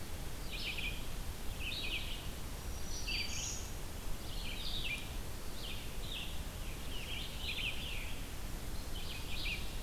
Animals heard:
Black-throated Green Warbler (Setophaga virens)
Red-eyed Vireo (Vireo olivaceus)

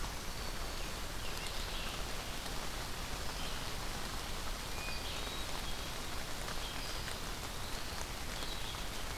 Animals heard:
Red-eyed Vireo (Vireo olivaceus)
Hermit Thrush (Catharus guttatus)
Eastern Wood-Pewee (Contopus virens)
Black-throated Green Warbler (Setophaga virens)

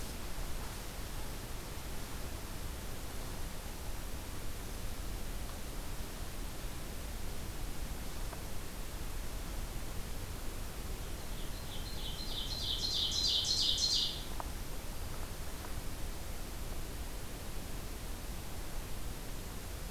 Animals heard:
Ovenbird (Seiurus aurocapilla)

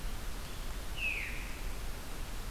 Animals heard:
Veery (Catharus fuscescens)

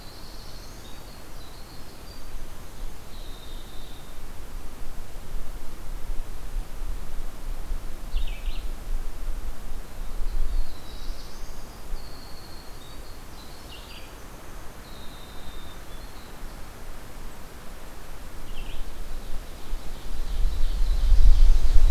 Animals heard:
Winter Wren (Troglodytes hiemalis)
Black-throated Blue Warbler (Setophaga caerulescens)
Ovenbird (Seiurus aurocapilla)

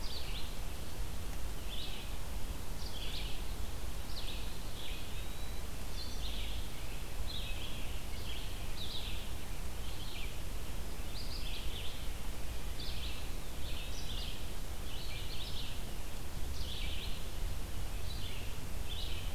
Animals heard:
Eastern Wood-Pewee (Contopus virens)
Red-eyed Vireo (Vireo olivaceus)

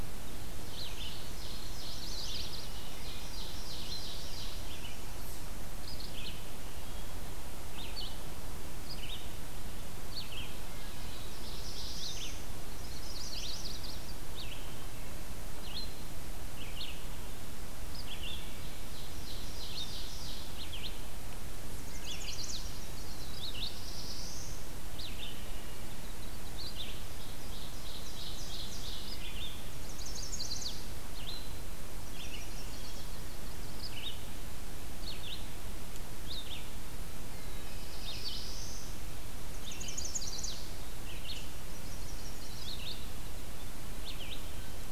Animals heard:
Black-throated Blue Warbler (Setophaga caerulescens)
Wood Thrush (Hylocichla mustelina)
Ovenbird (Seiurus aurocapilla)
Chestnut-sided Warbler (Setophaga pensylvanica)
Red-eyed Vireo (Vireo olivaceus)

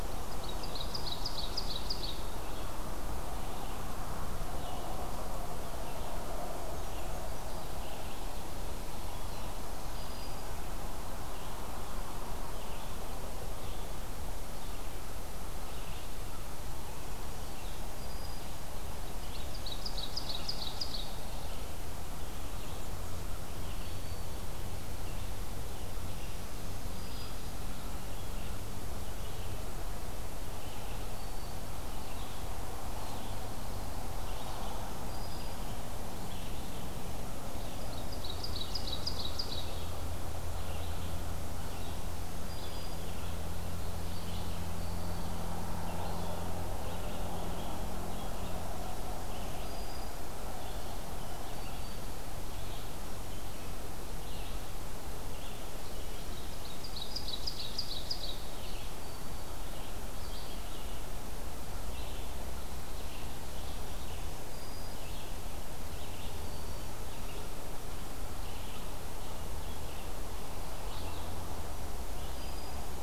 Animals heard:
Ovenbird (Seiurus aurocapilla)
Brown Creeper (Certhia americana)
Black-throated Green Warbler (Setophaga virens)
Red-eyed Vireo (Vireo olivaceus)

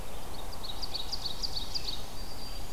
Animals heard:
Red-eyed Vireo (Vireo olivaceus)
Ovenbird (Seiurus aurocapilla)
Black-throated Green Warbler (Setophaga virens)

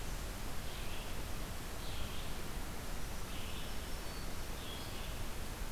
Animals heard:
Black-throated Green Warbler (Setophaga virens)
Red-eyed Vireo (Vireo olivaceus)

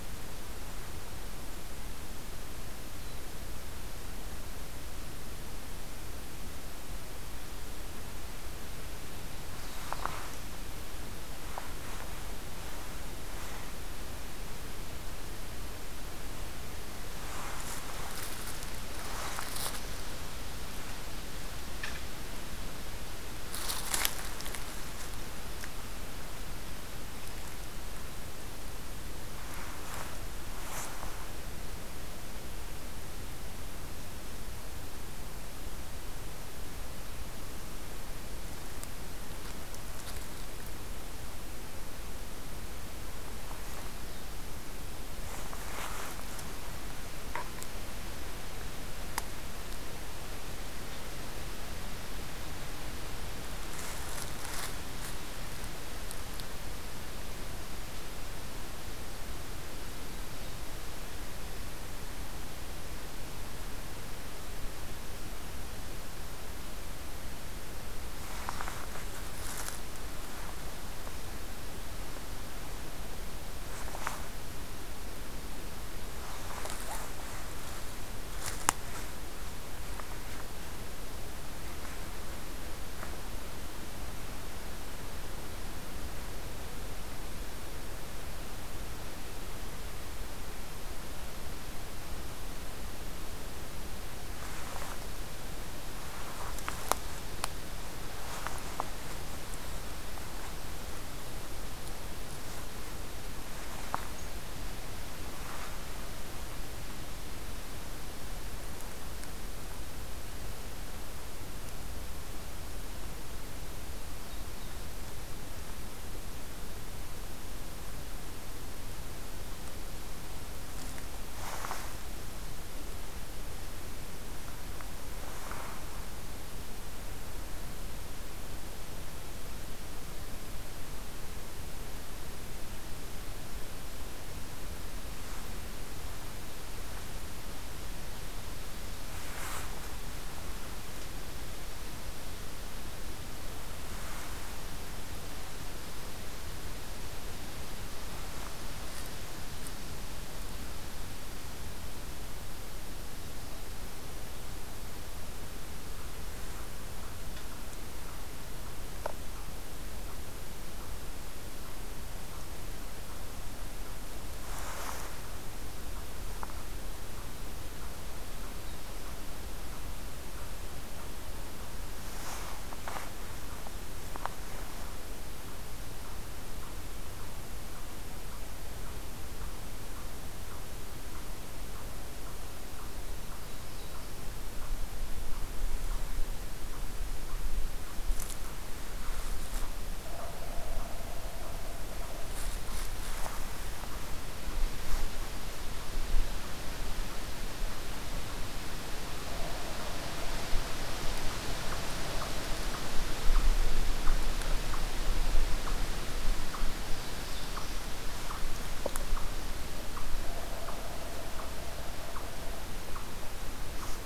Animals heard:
Black-throated Blue Warbler (Setophaga caerulescens)
Yellow-bellied Sapsucker (Sphyrapicus varius)
Eastern Chipmunk (Tamias striatus)

